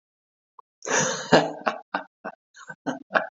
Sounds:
Laughter